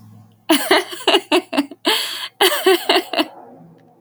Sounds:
Laughter